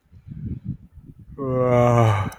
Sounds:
Sigh